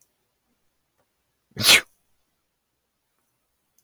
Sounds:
Sneeze